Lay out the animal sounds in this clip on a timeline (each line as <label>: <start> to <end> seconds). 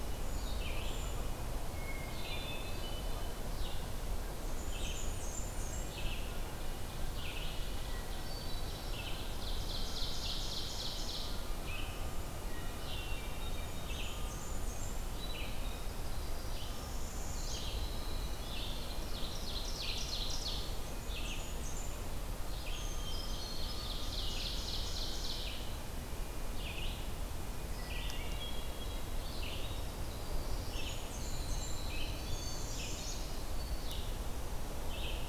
Red-eyed Vireo (Vireo olivaceus): 0.0 to 31.1 seconds
Brown Creeper (Certhia americana): 0.1 to 1.3 seconds
Hermit Thrush (Catharus guttatus): 1.7 to 3.3 seconds
Blackburnian Warbler (Setophaga fusca): 4.4 to 6.0 seconds
Hermit Thrush (Catharus guttatus): 8.0 to 9.1 seconds
Ovenbird (Seiurus aurocapilla): 9.2 to 11.4 seconds
Hermit Thrush (Catharus guttatus): 12.6 to 14.1 seconds
Blackburnian Warbler (Setophaga fusca): 13.5 to 15.1 seconds
Winter Wren (Troglodytes hiemalis): 15.5 to 19.3 seconds
Northern Parula (Setophaga americana): 16.6 to 17.6 seconds
Ovenbird (Seiurus aurocapilla): 18.9 to 20.7 seconds
Blackburnian Warbler (Setophaga fusca): 20.6 to 21.9 seconds
unidentified call: 22.7 to 23.9 seconds
Ovenbird (Seiurus aurocapilla): 23.4 to 25.6 seconds
Hermit Thrush (Catharus guttatus): 27.8 to 29.1 seconds
Winter Wren (Troglodytes hiemalis): 29.4 to 32.4 seconds
Blackburnian Warbler (Setophaga fusca): 30.5 to 31.8 seconds
Northern Parula (Setophaga americana): 32.2 to 33.3 seconds
Red-eyed Vireo (Vireo olivaceus): 32.6 to 35.3 seconds